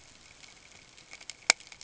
{"label": "ambient", "recorder": "HydroMoth"}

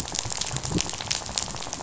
{"label": "biophony, rattle", "recorder": "SoundTrap 500"}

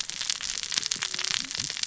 {"label": "biophony, cascading saw", "recorder": "SoundTrap 600 or HydroMoth"}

